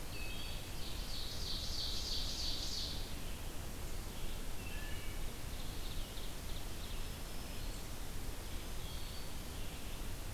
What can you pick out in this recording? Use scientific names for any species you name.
Hylocichla mustelina, Vireo olivaceus, Seiurus aurocapilla